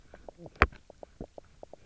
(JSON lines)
{"label": "biophony, knock croak", "recorder": "SoundTrap 300"}